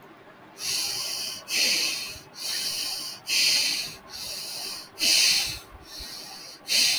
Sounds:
Sigh